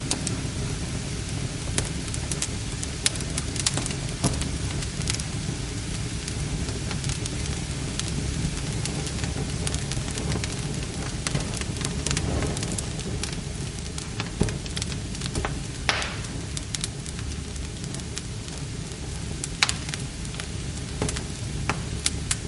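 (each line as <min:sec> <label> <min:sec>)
0:00.0 Steady fire burning with soft crackles and pops, creating a warm and natural ambiance. 0:22.4
0:00.0 Crackling from a burning fire. 0:00.5
0:01.7 Crackling from a burning fire. 0:05.7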